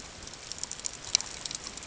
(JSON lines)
{"label": "ambient", "recorder": "HydroMoth"}